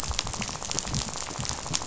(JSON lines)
{"label": "biophony, rattle", "recorder": "SoundTrap 500"}